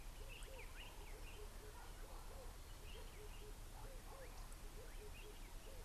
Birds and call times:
Red-eyed Dove (Streptopelia semitorquata): 0:04.1

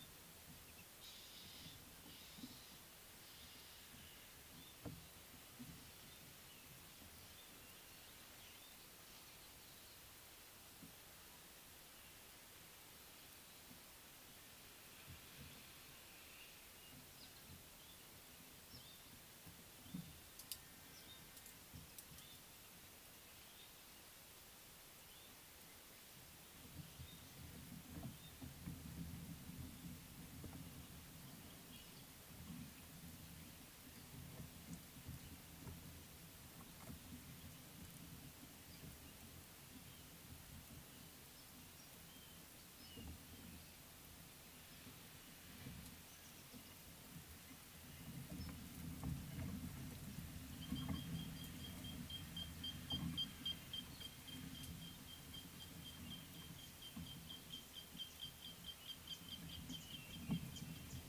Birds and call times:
Nubian Woodpecker (Campethera nubica): 0:57.3

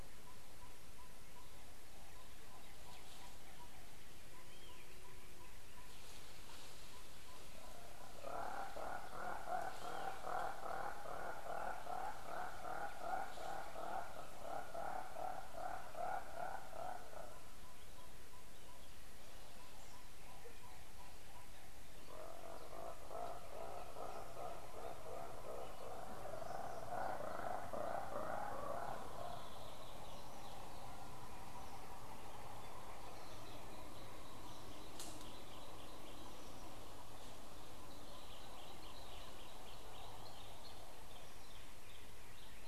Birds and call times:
Yellow-rumped Tinkerbird (Pogoniulus bilineatus): 0:18.1
Hartlaub's Turaco (Tauraco hartlaubi): 0:21.0

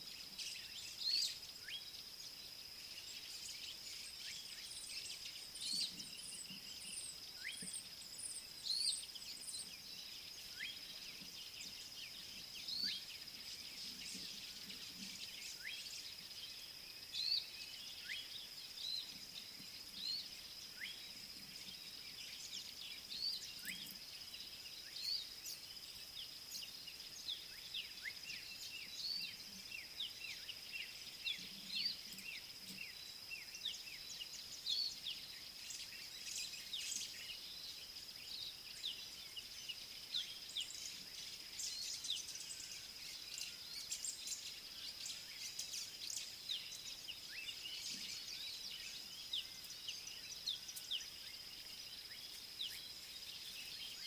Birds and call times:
Pale White-eye (Zosterops flavilateralis): 0:17.3
Black-backed Puffback (Dryoscopus cubla): 0:30.3
Scarlet-chested Sunbird (Chalcomitra senegalensis): 0:33.7, 0:49.4

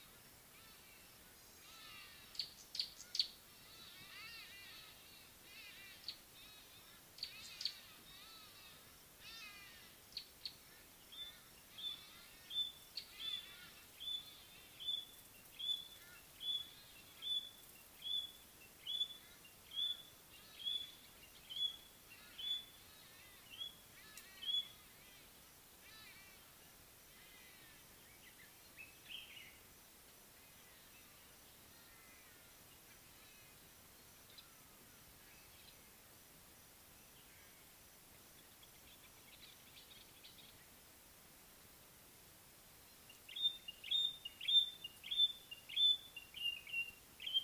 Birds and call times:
Hadada Ibis (Bostrychia hagedash): 0:01.8, 0:09.4, 0:26.1
Gray-backed Camaroptera (Camaroptera brevicaudata): 0:02.8
White-browed Robin-Chat (Cossypha heuglini): 0:14.0, 0:19.8, 0:44.5
Common Bulbul (Pycnonotus barbatus): 0:29.0, 0:39.7

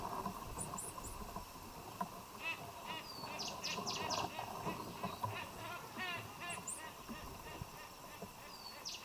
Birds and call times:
Silvery-cheeked Hornbill (Bycanistes brevis): 0:02.2
Cinnamon Bracken-Warbler (Bradypterus cinnamomeus): 0:03.5

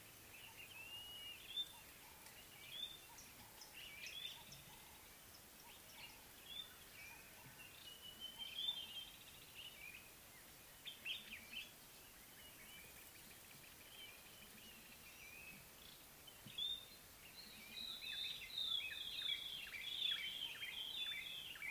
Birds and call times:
Blue-naped Mousebird (Urocolius macrourus): 0:01.0
Sulphur-breasted Bushshrike (Telophorus sulfureopectus): 0:08.3
African Thrush (Turdus pelios): 0:09.2
White-browed Robin-Chat (Cossypha heuglini): 0:19.3

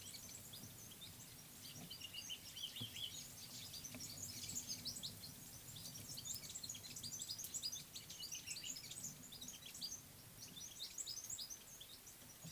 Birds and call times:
African Paradise-Flycatcher (Terpsiphone viridis): 0:02.6

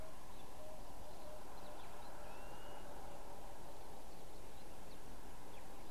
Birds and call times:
Blue-naped Mousebird (Urocolius macrourus): 0:02.5

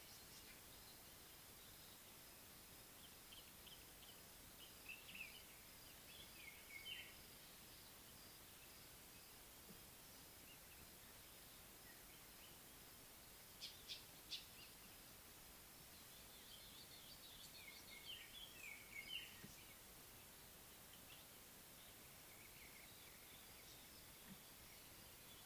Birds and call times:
Common Bulbul (Pycnonotus barbatus): 0:05.0
Northern Puffback (Dryoscopus gambensis): 0:13.9
White-browed Robin-Chat (Cossypha heuglini): 0:18.3

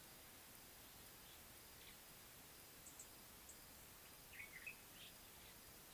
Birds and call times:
Red-cheeked Cordonbleu (Uraeginthus bengalus): 0:03.0
Common Bulbul (Pycnonotus barbatus): 0:04.6

